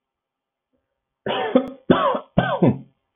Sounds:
Cough